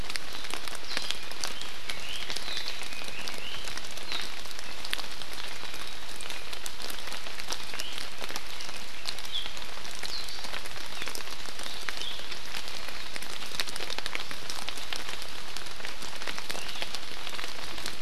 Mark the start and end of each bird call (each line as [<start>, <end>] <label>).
[0.92, 1.42] Iiwi (Drepanis coccinea)
[1.82, 3.72] Red-billed Leiothrix (Leiothrix lutea)
[7.52, 7.92] Iiwi (Drepanis coccinea)